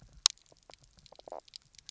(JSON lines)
{"label": "biophony, knock croak", "recorder": "SoundTrap 300"}